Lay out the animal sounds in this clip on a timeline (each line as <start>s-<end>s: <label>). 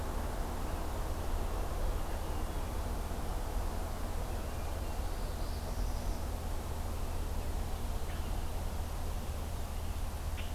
1.9s-2.8s: Hermit Thrush (Catharus guttatus)
5.0s-6.2s: Northern Parula (Setophaga americana)
8.0s-8.2s: Common Grackle (Quiscalus quiscula)
10.3s-10.5s: Common Grackle (Quiscalus quiscula)